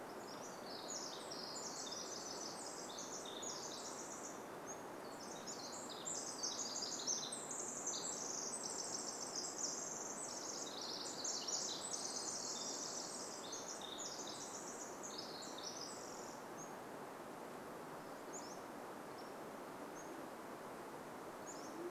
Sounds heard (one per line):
Pacific Wren song
Pacific-slope Flycatcher song
Band-tailed Pigeon call